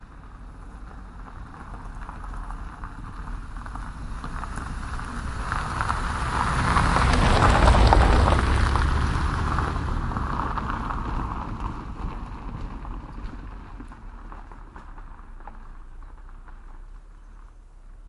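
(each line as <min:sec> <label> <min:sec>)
0:00.0 A vehicle drives by on gravel. 0:18.1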